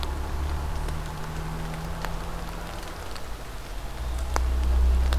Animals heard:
forest ambience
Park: Marsh-Billings-Rockefeller National Historical Park